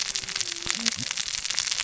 {"label": "biophony, cascading saw", "recorder": "SoundTrap 600 or HydroMoth"}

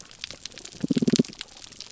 {"label": "biophony, damselfish", "recorder": "SoundTrap 300"}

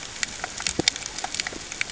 {"label": "ambient", "recorder": "HydroMoth"}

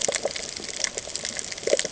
{"label": "ambient", "recorder": "HydroMoth"}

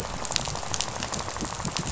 {"label": "biophony, rattle", "recorder": "SoundTrap 500"}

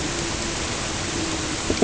{"label": "ambient", "recorder": "HydroMoth"}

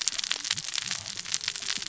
{"label": "biophony, cascading saw", "recorder": "SoundTrap 600 or HydroMoth"}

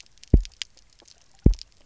{"label": "biophony, double pulse", "recorder": "SoundTrap 300"}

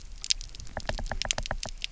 {"label": "biophony, knock", "recorder": "SoundTrap 300"}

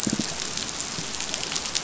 {"label": "biophony", "recorder": "SoundTrap 500"}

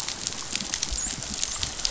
{"label": "biophony, dolphin", "recorder": "SoundTrap 500"}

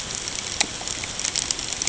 {"label": "ambient", "recorder": "HydroMoth"}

